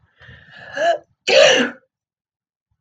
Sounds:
Sneeze